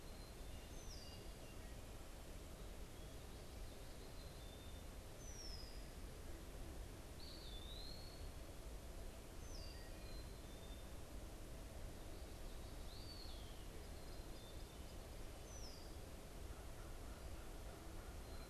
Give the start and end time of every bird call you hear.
0.4s-1.4s: Eastern Wood-Pewee (Contopus virens)
3.9s-10.9s: Black-capped Chickadee (Poecile atricapillus)
4.9s-5.9s: Red-winged Blackbird (Agelaius phoeniceus)
7.0s-13.7s: Eastern Wood-Pewee (Contopus virens)
15.3s-16.1s: Red-winged Blackbird (Agelaius phoeniceus)

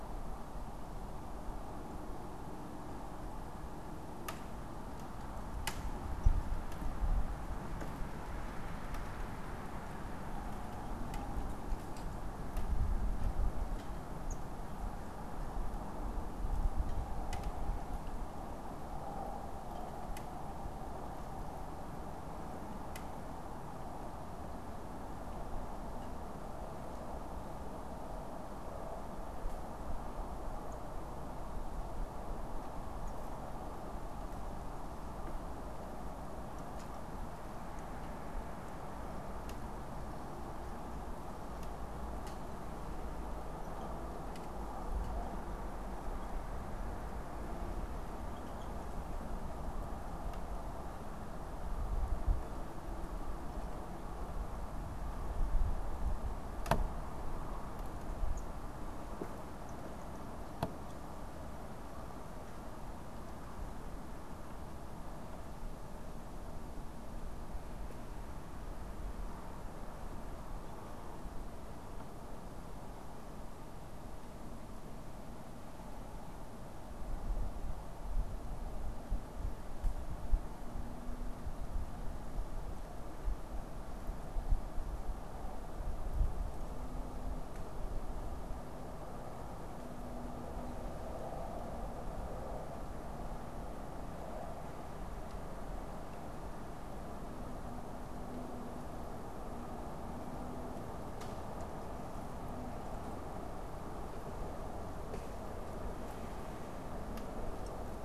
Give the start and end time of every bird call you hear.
14.2s-14.5s: unidentified bird

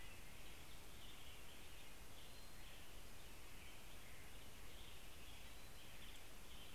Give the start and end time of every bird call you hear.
0.0s-6.7s: American Robin (Turdus migratorius)

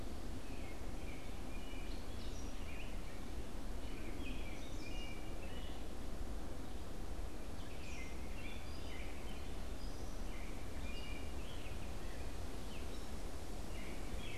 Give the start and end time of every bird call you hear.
0.0s-0.6s: Gray Catbird (Dumetella carolinensis)
0.5s-14.4s: American Robin (Turdus migratorius)
1.8s-14.4s: Gray Catbird (Dumetella carolinensis)

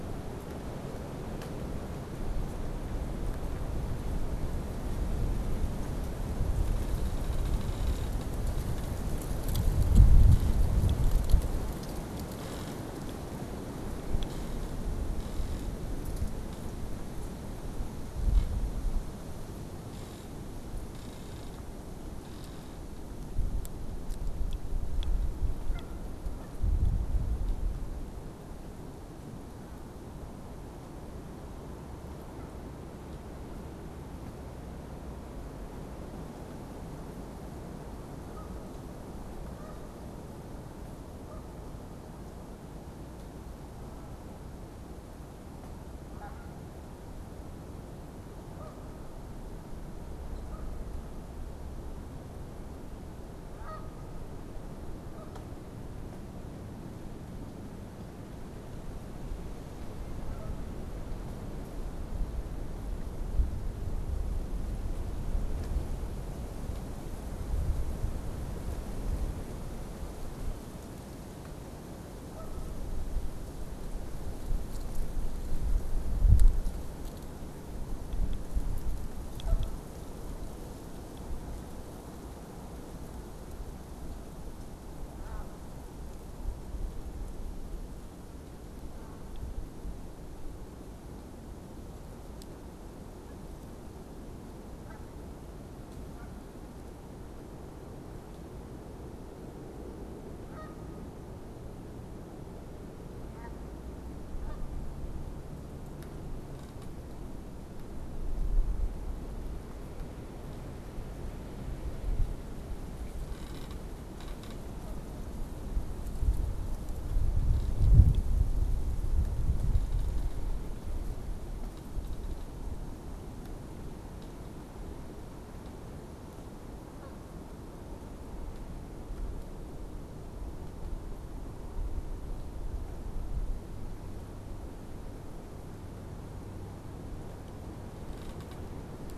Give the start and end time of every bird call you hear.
25.4s-26.8s: Canada Goose (Branta canadensis)
37.7s-40.3s: Canada Goose (Branta canadensis)
41.0s-41.7s: Canada Goose (Branta canadensis)
45.9s-54.5s: Canada Goose (Branta canadensis)
54.9s-55.6s: Canada Goose (Branta canadensis)
59.8s-60.8s: Canada Goose (Branta canadensis)
72.1s-73.0s: Canada Goose (Branta canadensis)
79.1s-79.8s: Canada Goose (Branta canadensis)
85.0s-89.6s: unidentified bird
92.9s-96.5s: Canada Goose (Branta canadensis)
100.3s-105.2s: Canada Goose (Branta canadensis)
126.7s-127.4s: Canada Goose (Branta canadensis)

